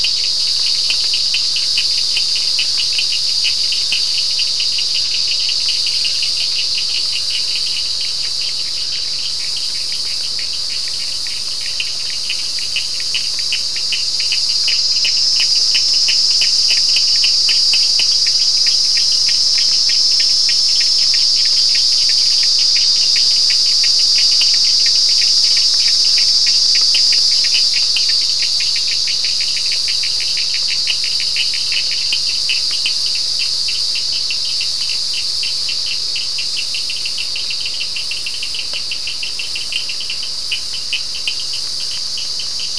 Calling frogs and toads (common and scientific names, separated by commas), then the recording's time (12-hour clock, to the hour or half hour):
Cochran's lime tree frog (Sphaenorhynchus surdus)
~7pm